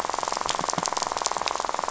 {"label": "biophony, rattle", "recorder": "SoundTrap 500"}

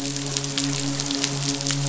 {"label": "biophony, midshipman", "recorder": "SoundTrap 500"}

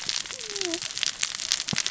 {"label": "biophony, cascading saw", "recorder": "SoundTrap 600 or HydroMoth"}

